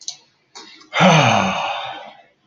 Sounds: Sigh